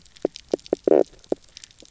{"label": "biophony, knock croak", "recorder": "SoundTrap 300"}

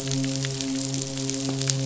{"label": "biophony, midshipman", "recorder": "SoundTrap 500"}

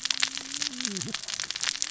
{"label": "biophony, cascading saw", "recorder": "SoundTrap 600 or HydroMoth"}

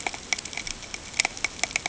{"label": "ambient", "recorder": "HydroMoth"}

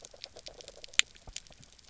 {"label": "biophony, grazing", "recorder": "SoundTrap 300"}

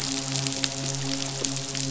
{"label": "biophony, midshipman", "recorder": "SoundTrap 500"}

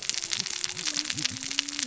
{"label": "biophony, cascading saw", "recorder": "SoundTrap 600 or HydroMoth"}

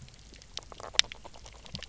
{"label": "biophony, knock croak", "recorder": "SoundTrap 300"}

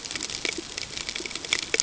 {"label": "ambient", "recorder": "HydroMoth"}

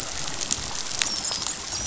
{"label": "biophony, dolphin", "recorder": "SoundTrap 500"}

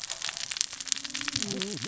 {"label": "biophony, cascading saw", "recorder": "SoundTrap 600 or HydroMoth"}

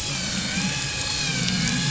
{"label": "anthrophony, boat engine", "recorder": "SoundTrap 500"}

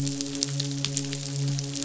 {"label": "biophony, midshipman", "recorder": "SoundTrap 500"}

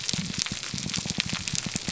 {"label": "biophony, grouper groan", "recorder": "SoundTrap 300"}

